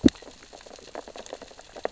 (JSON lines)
{"label": "biophony, sea urchins (Echinidae)", "recorder": "SoundTrap 600 or HydroMoth"}